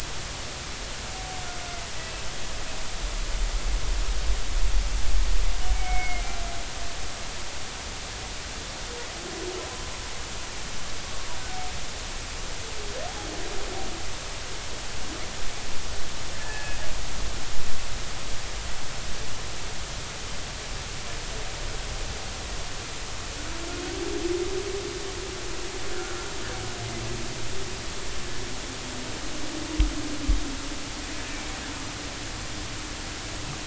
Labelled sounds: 5.7	6.2	humpback whale, 2.1 to 2.3 kHz
16.3	16.8	humpback whale, 1.6 to 1.8 kHz

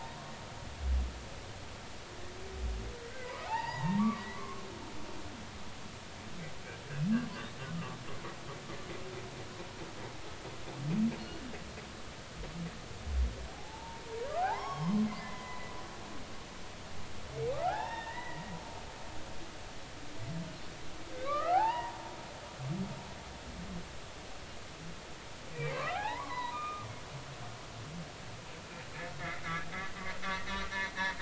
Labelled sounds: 3.1	4.6	humpback whale, 0.80 to 5.0 kHz
11.2	11.4	humpback whale, 2.8 to 2.9 kHz
13.5	15.7	humpback whale, 0.80 to 3.4 kHz
17.5	18.6	humpback whale, 0.80 to 3.7 kHz
21.1	22.0	humpback whale, 0.80 to 3.0 kHz
25.5	26.9	humpback whale, 0.80 to 4.1 kHz
30.2	30.6	humpback whale, 1.7 to 2.0 kHz

